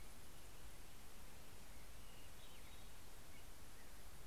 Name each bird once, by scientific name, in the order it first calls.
Pheucticus melanocephalus